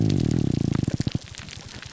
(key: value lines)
label: biophony, grouper groan
recorder: SoundTrap 300